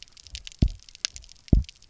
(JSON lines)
{"label": "biophony, double pulse", "recorder": "SoundTrap 300"}